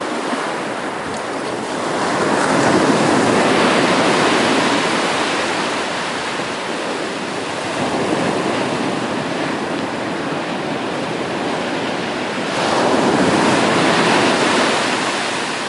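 0.0s Ocean waves are making a sound. 15.7s
1.7s Ocean waves crash onto the beach during a storm. 5.8s
7.5s Ocean waves crash onto the beach during a storm. 9.8s
12.5s Ocean waves crash onto the beach during a storm. 15.6s

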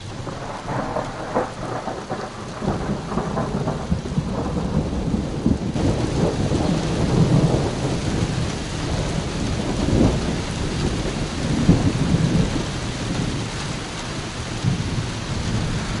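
0.0s Heavy rain pouring down with rolling thunder. 16.0s

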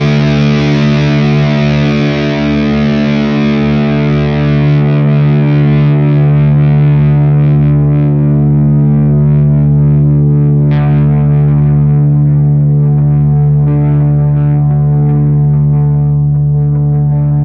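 0.0s An electric guitar strums a heavily distorted D chord that rings out with sustained buzzing resonance. 10.7s
10.7s An electric guitar strums a quiet distorted D chord that rings out with a soft buzzing resonance. 13.7s
13.7s An electric guitar strums a faint, distorted D chord that rings out with a minimal buzzing resonance. 17.4s

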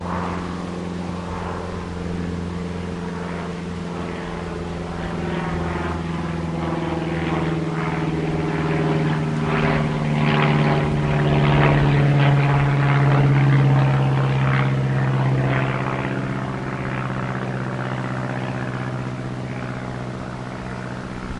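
0.0s A faint helicopter flies away in the distance. 21.4s

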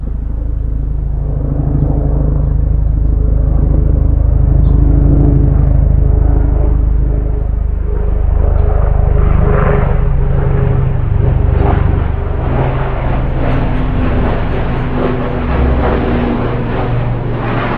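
0.0s A helicopter approaches and passes overhead with a hum and rhythmic thumping. 17.8s

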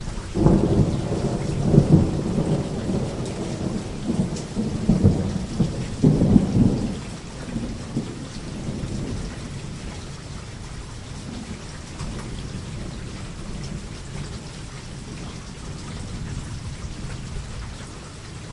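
0.0s Thunderstorm with loud thunder sounds outdoors. 18.5s

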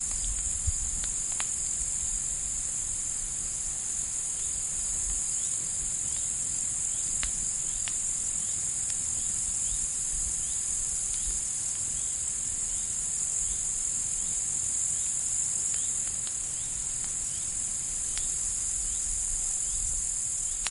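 0.0s Intermittent walking sounds in the distance outdoors. 20.7s
0.0s The continuous, quiet sound of a cricket in a jungle environment. 20.7s

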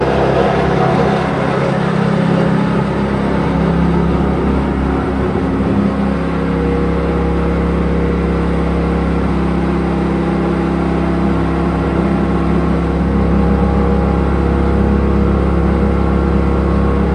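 0.0s Machinery working with metallic sounds outdoors. 17.1s

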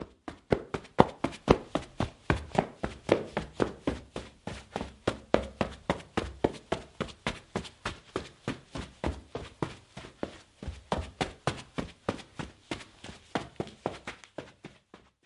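0.0s Clumsy running on a concrete floor. 15.3s

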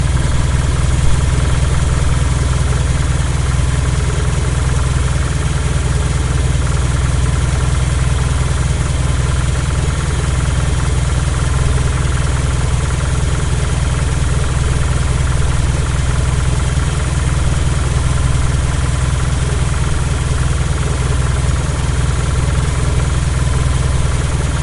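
0.0s An engine is idling steadily. 24.6s

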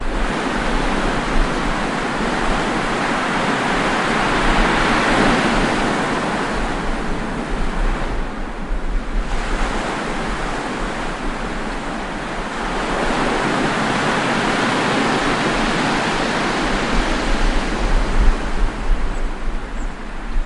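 0.0s Multiple small waves hit the shore and gradually fade away. 8.2s
0.0s Ocean ambience with birds chirping quietly in the distance. 20.5s
9.3s Multiple small waves hit the shore and gradually fade away. 20.5s

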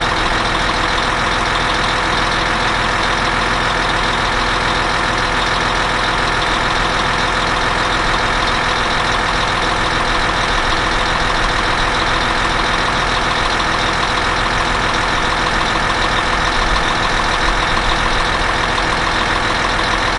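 0.0s A diesel engine truck is running. 20.2s

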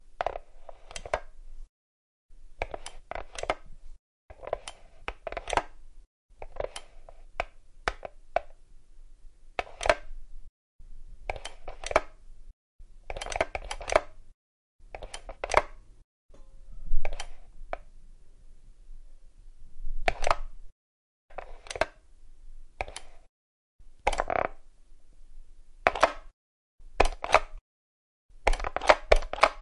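0.0s Repetitive, isolated mechanical sounds similar to a sewing machine. 1.7s
2.5s Repetitive, isolated mechanical sounds similar to a sewing machine. 8.5s
9.5s Repetitive, isolated mechanical sounds similar to a sewing machine. 12.2s
12.9s Repetitive, isolated mechanical sounds similar to a sewing machine. 14.2s
14.8s Repetitive, isolated mechanical sounds similar to a sewing machine. 15.8s
16.6s Repetitive, isolated mechanical sounds similar to a sewing machine. 17.9s
19.5s Repetitive, isolated mechanical sounds similar to a sewing machine. 22.0s
22.6s Repetitive, isolated mechanical sounds similar to a sewing machine. 23.2s
23.9s Repetitive, isolated mechanical sounds similar to a sewing machine. 24.5s
25.8s Repetitive, isolated mechanical sounds similar to a sewing machine. 26.2s
26.9s Repetitive, isolated mechanical sounds similar to a sewing machine. 27.6s
28.4s Repetitive, isolated mechanical sounds similar to a sewing machine. 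29.6s

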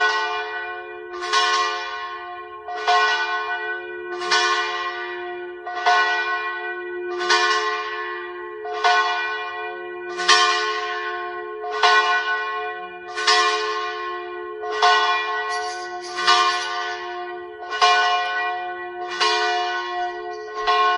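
1.2s A bell is ringing in a church. 5.6s

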